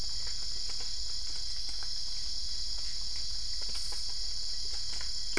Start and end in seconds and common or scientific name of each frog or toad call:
none